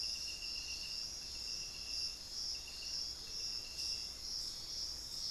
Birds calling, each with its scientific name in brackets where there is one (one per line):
Amazonian Motmot (Momotus momota)